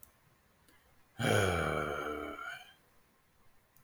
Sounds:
Sigh